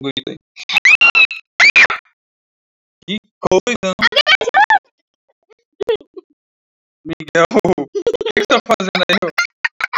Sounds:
Sigh